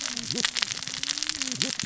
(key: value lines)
label: biophony, cascading saw
recorder: SoundTrap 600 or HydroMoth